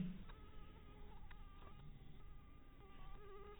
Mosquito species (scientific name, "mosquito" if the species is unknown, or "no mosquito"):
mosquito